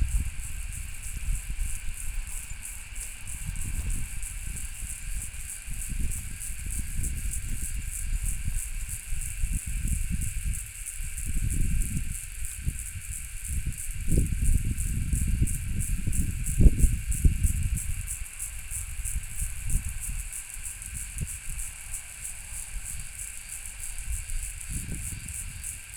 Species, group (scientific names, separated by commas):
Yoyetta robertsonae, Cicadidae